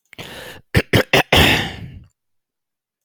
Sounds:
Throat clearing